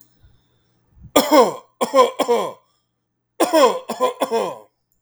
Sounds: Cough